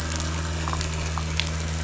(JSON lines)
{"label": "biophony", "recorder": "SoundTrap 500"}
{"label": "anthrophony, boat engine", "recorder": "SoundTrap 500"}